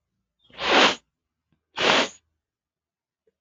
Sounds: Sniff